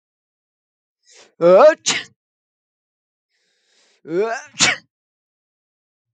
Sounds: Sneeze